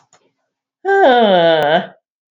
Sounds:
Sigh